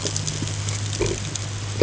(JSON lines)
{"label": "ambient", "recorder": "HydroMoth"}